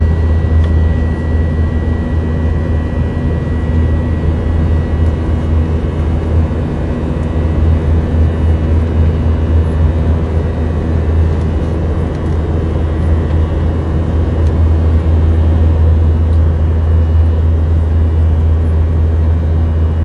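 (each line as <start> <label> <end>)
0.0 An airplane engine is running loudly in a steady pattern. 20.0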